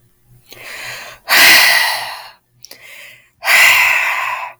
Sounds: Sigh